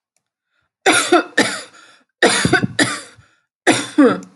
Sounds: Cough